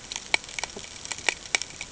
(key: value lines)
label: ambient
recorder: HydroMoth